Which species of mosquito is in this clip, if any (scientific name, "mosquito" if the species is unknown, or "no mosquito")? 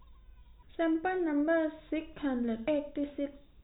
no mosquito